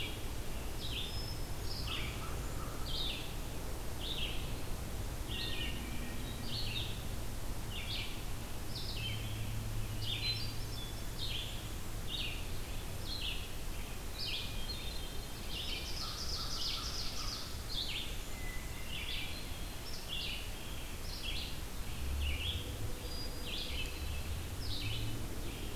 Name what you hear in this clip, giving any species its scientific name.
Vireo olivaceus, Catharus guttatus, Corvus brachyrhynchos, Seiurus aurocapilla